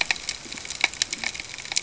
{"label": "ambient", "recorder": "HydroMoth"}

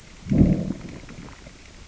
{"label": "biophony, growl", "recorder": "SoundTrap 600 or HydroMoth"}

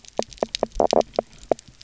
{"label": "biophony, knock croak", "recorder": "SoundTrap 300"}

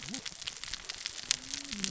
{"label": "biophony, cascading saw", "recorder": "SoundTrap 600 or HydroMoth"}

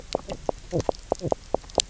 {"label": "biophony, knock croak", "recorder": "SoundTrap 300"}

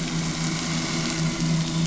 {"label": "anthrophony, boat engine", "recorder": "SoundTrap 500"}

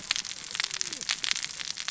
{"label": "biophony, cascading saw", "recorder": "SoundTrap 600 or HydroMoth"}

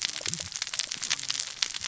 {"label": "biophony, cascading saw", "recorder": "SoundTrap 600 or HydroMoth"}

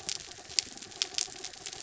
{"label": "anthrophony, mechanical", "recorder": "SoundTrap 300"}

